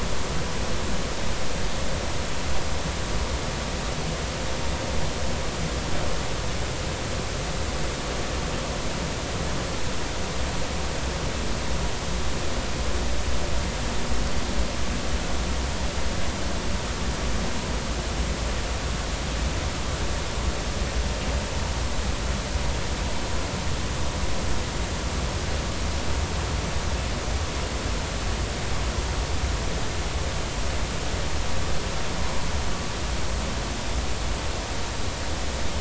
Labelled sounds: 32.2	32.5	vessel noise, 0.93 to 1.1 kHz

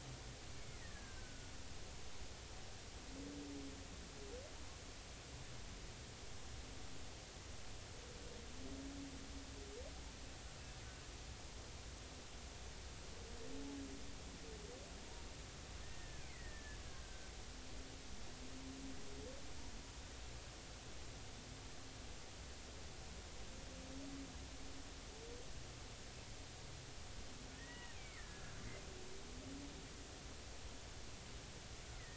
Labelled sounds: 0.6	1.5	killer whale, Bigg's (transient), 1.4 to 2.3 kHz
15.8	17.3	killer whale, Bigg's (transient), 1.5 to 2.5 kHz
27.6	28.2	killer whale, Bigg's (transient), 1.8 to 3.0 kHz
29.2	29.6	killer whale, Bigg's (transient), 1.5 to 2.0 kHz
31.9	32.1	killer whale, Bigg's (transient), 1.8 to 2.2 kHz

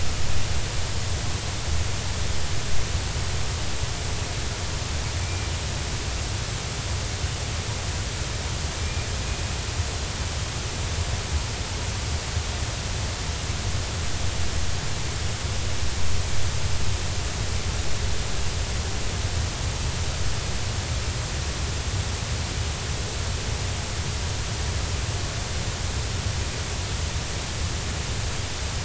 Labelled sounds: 5.2	5.5	killer whale, 2.2 to 2.4 kHz
8.7	9.1	killer whale, 2.3 to 2.5 kHz

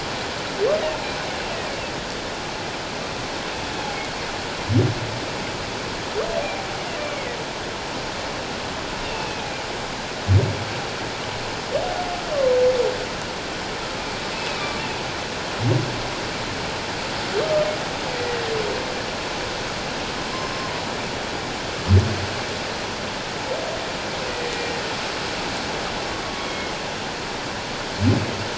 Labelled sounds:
7.0	7.4	humpback whale, 1.8 to 2.4 kHz
9.0	9.5	humpback whale, 2.5 to 2.8 kHz
14.3	14.8	humpback whale, 1.1 to 2.7 kHz
20.4	20.8	humpback whale, 0.94 to 5.3 kHz
24.5	24.8	humpback whale, 1.8 to 1.9 kHz
26.4	26.8	humpback whale, 2.1 to 3.3 kHz

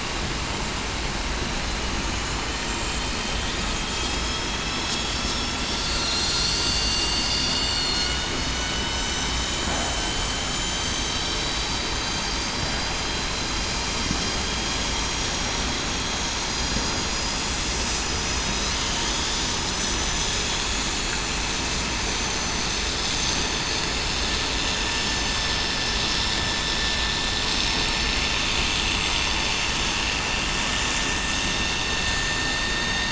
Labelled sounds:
2.0	2.4	vessel noise, 6.4 to 6.5 kHz
3.9	4.5	vessel noise, 3.2 to 3.3 kHz
4.9	5.6	vessel noise, 5.3 to 5.4 kHz
6.6	10.0	vessel noise, 2.8 to 7.0 kHz
6.7	7.0	killer whale, southern resident, 4.4 to 4.6 kHz
10.4	10.9	vessel noise, 3.9 to 7.2 kHz
11.9	12.2	vessel noise, 6.3 to 6.4 kHz
12.5	12.9	vessel noise, 3.96 to 4.03 kHz
17.0	17.4	vessel noise, 5.8 to 6.0 kHz
17.8	18.2	vessel noise, 5.9 to 6.0 kHz
19.8	20.1	vessel noise, 6.00 to 6.05 kHz
32.6	33.0	vessel noise, 3.6 to 3.7 kHz

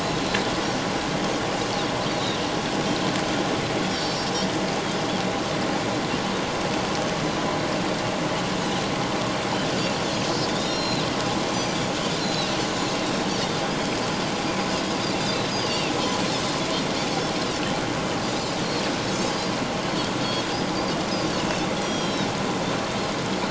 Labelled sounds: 2.1	2.4	Pacific white-sided dolphin, 3.7 to 4.1 kHz
10.5	11.1	Pacific white-sided dolphin, 2.6 to 5.7 kHz
11.5	11.8	Pacific white-sided dolphin, 4.3 to 6.1 kHz
12.2	12.5	Pacific white-sided dolphin, 3.7 to 4.2 kHz
15.6	15.9	Pacific white-sided dolphin, 2.5 to 3.2 kHz
17.1	17.3	Pacific white-sided dolphin, 6.2 to 6.5 kHz
19.1	19.5	Pacific white-sided dolphin, 4.7 to 6.5 kHz
20.2	20.7	Pacific white-sided dolphin, 3.2 to 5.1 kHz
21.8	22.3	Pacific white-sided dolphin, 3.1 to 5.9 kHz

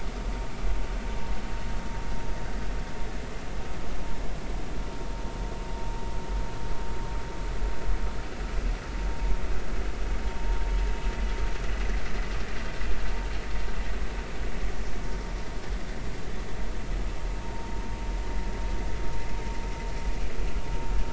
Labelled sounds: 17.5	17.8	vessel noise, 0.90 to 0.99 kHz

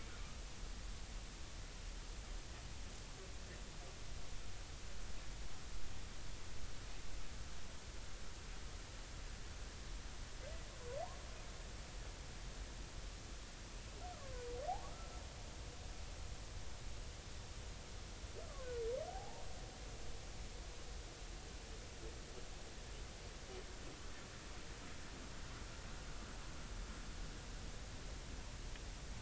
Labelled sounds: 14.8	15.1	humpback whale, 1.1 to 1.4 kHz
19.1	19.4	humpback whale, 0.80 to 0.96 kHz

